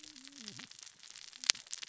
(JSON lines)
{"label": "biophony, cascading saw", "recorder": "SoundTrap 600 or HydroMoth"}